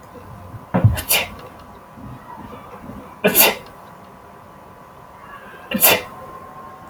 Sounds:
Sneeze